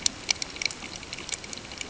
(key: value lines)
label: ambient
recorder: HydroMoth